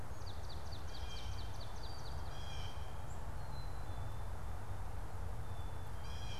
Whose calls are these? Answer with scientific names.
Melospiza georgiana, Cyanocitta cristata